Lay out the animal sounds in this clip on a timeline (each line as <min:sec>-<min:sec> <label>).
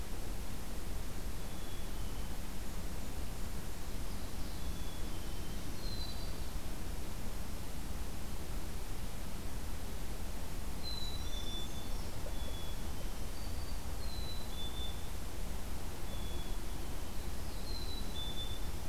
0:01.3-0:02.4 Black-capped Chickadee (Poecile atricapillus)
0:04.4-0:05.7 Black-capped Chickadee (Poecile atricapillus)
0:10.7-0:13.4 Black-capped Chickadee (Poecile atricapillus)
0:10.8-0:12.3 Brown Creeper (Certhia americana)
0:13.1-0:14.0 Black-throated Green Warbler (Setophaga virens)
0:14.0-0:15.1 Black-capped Chickadee (Poecile atricapillus)
0:16.0-0:17.2 Black-capped Chickadee (Poecile atricapillus)
0:17.5-0:18.6 Black-capped Chickadee (Poecile atricapillus)